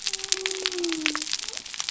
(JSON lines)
{"label": "biophony", "recorder": "SoundTrap 300"}